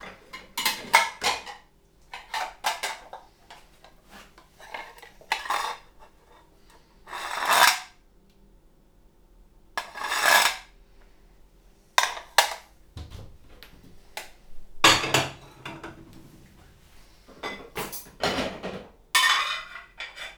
What room is this sound coming from?
kitchen